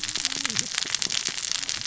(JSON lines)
{"label": "biophony, cascading saw", "recorder": "SoundTrap 600 or HydroMoth"}